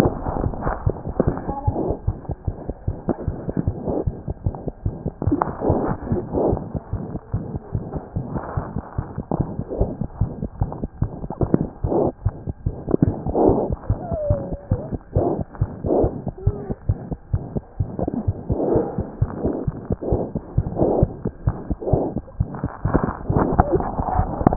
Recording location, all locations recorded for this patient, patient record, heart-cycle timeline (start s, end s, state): mitral valve (MV)
aortic valve (AV)+mitral valve (MV)
#Age: Infant
#Sex: Female
#Height: 61.0 cm
#Weight: 5.4 kg
#Pregnancy status: False
#Murmur: Present
#Murmur locations: aortic valve (AV)+mitral valve (MV)
#Most audible location: mitral valve (MV)
#Systolic murmur timing: Holosystolic
#Systolic murmur shape: Plateau
#Systolic murmur grading: I/VI
#Systolic murmur pitch: High
#Systolic murmur quality: Harsh
#Diastolic murmur timing: nan
#Diastolic murmur shape: nan
#Diastolic murmur grading: nan
#Diastolic murmur pitch: nan
#Diastolic murmur quality: nan
#Outcome: Abnormal
#Campaign: 2015 screening campaign
0.00	6.91	unannotated
6.91	6.99	S1
6.99	7.12	systole
7.12	7.20	S2
7.20	7.31	diastole
7.31	7.41	S1
7.41	7.53	systole
7.53	7.60	S2
7.60	7.73	diastole
7.73	7.80	S1
7.80	7.92	systole
7.92	8.00	S2
8.00	8.14	diastole
8.14	8.21	S1
8.21	8.32	systole
8.32	8.42	S2
8.42	8.54	diastole
8.54	8.62	S1
8.62	8.73	systole
8.73	8.84	S2
8.84	8.96	diastole
8.96	9.04	S1
9.04	24.56	unannotated